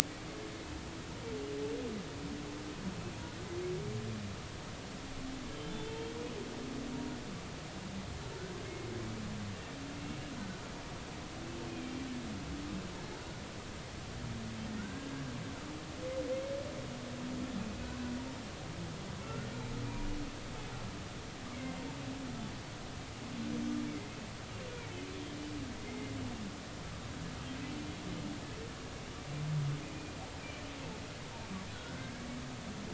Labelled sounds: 11.8	12.1	humpback whale, 2.3 to 2.4 kHz
14.8	15.1	humpback whale, 1.3 to 1.7 kHz
19.2	19.5	humpback whale, 1.3 to 1.5 kHz
23.9	24.2	humpback whale, 2.0 to 2.3 kHz
25.9	26.1	humpback whale, 2.0 to 2.2 kHz
27.6	27.9	humpback whale, 2.5 to 2.7 kHz
29.8	30.6	humpback whale, 2.3 to 2.6 kHz
31.7	32.2	humpback whale, 1.4 to 1.7 kHz

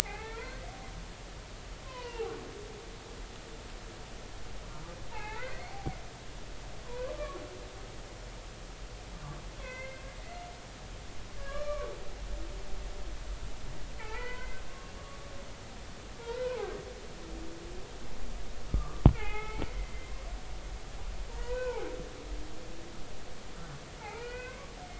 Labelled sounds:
0.0	0.7	humpback whale, 0.80 to 2.7 kHz
1.8	2.3	humpback whale, 0.80 to 3.2 kHz
5.1	6.0	humpback whale, 0.80 to 2.8 kHz
6.8	7.1	humpback whale, 0.90 to 1.2 kHz
9.6	10.0	humpback whale, 0.96 to 2.7 kHz
11.3	11.9	humpback whale, 1.0 to 2.4 kHz
14.0	15.5	humpback whale, 0.80 to 2.6 kHz
16.2	16.7	humpback whale, 0.80 to 1.6 kHz
18.7	19.7	humpback whale, 0.80 to 3.5 kHz
21.4	21.9	humpback whale, 0.80 to 1.6 kHz
24.1	24.7	humpback whale, 1.2 to 2.3 kHz

